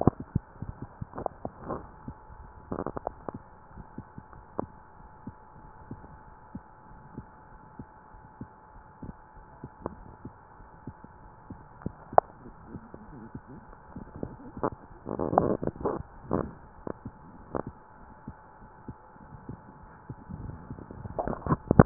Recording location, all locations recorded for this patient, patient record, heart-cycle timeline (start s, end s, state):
aortic valve (AV)
aortic valve (AV)+pulmonary valve (PV)+tricuspid valve (TV)+mitral valve (MV)
#Age: nan
#Sex: Female
#Height: nan
#Weight: nan
#Pregnancy status: True
#Murmur: Absent
#Murmur locations: nan
#Most audible location: nan
#Systolic murmur timing: nan
#Systolic murmur shape: nan
#Systolic murmur grading: nan
#Systolic murmur pitch: nan
#Systolic murmur quality: nan
#Diastolic murmur timing: nan
#Diastolic murmur shape: nan
#Diastolic murmur grading: nan
#Diastolic murmur pitch: nan
#Diastolic murmur quality: nan
#Outcome: Abnormal
#Campaign: 2015 screening campaign
0.00	5.00	unannotated
5.00	5.12	S1
5.12	5.26	systole
5.26	5.34	S2
5.34	5.58	diastole
5.58	5.70	S1
5.70	5.88	systole
5.88	5.98	S2
5.98	6.28	diastole
6.28	6.41	S1
6.41	6.52	systole
6.52	6.62	S2
6.62	6.89	diastole
6.89	7.00	S1
7.00	7.16	systole
7.16	7.28	S2
7.28	7.50	systole
7.50	7.60	S1
7.60	7.78	systole
7.78	7.90	S2
7.90	8.14	diastole
8.14	8.26	S1
8.26	8.39	systole
8.39	8.49	S2
8.49	8.76	diastole
8.76	8.88	S1
8.88	9.04	systole
9.04	9.14	S2
9.14	9.32	diastole
9.32	9.42	S1
9.42	9.61	systole
9.61	9.70	S2
9.70	21.86	unannotated